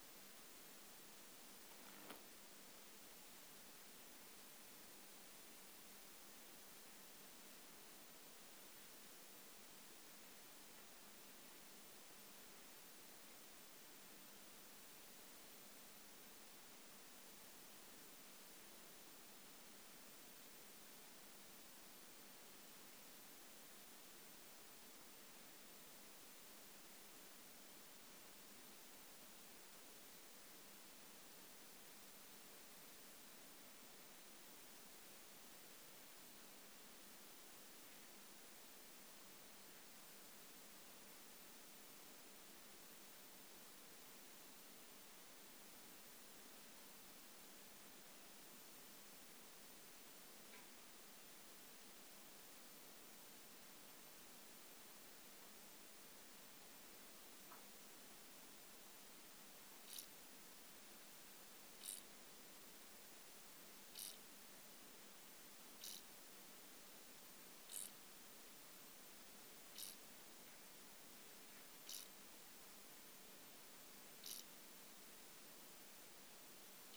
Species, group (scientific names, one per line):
Chorthippus brunneus
Orthoptera